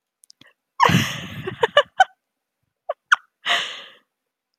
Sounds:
Laughter